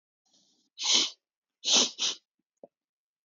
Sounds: Sniff